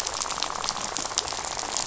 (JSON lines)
{"label": "biophony, rattle", "recorder": "SoundTrap 500"}